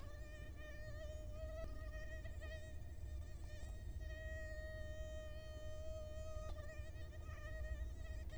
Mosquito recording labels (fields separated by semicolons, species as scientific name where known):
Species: Culex quinquefasciatus; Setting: cup